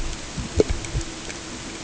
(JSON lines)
{"label": "ambient", "recorder": "HydroMoth"}